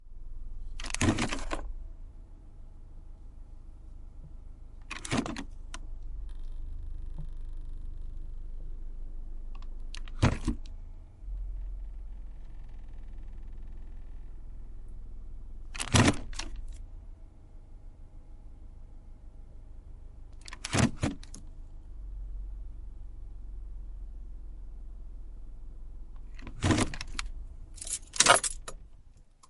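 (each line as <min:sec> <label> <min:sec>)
0:00.4 A driver is manipulating the stick shift. 0:01.9
0:05.0 A driver is manipulating the stick shift. 0:05.9
0:09.5 A driver is manipulating the stick shift. 0:10.9
0:15.5 A driver is manipulating the stick shift. 0:16.8
0:20.4 A driver is manipulating the stick shift. 0:21.5
0:26.0 Noises inside a car caused by the driver touching objects. 0:29.5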